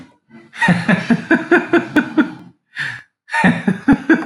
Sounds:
Laughter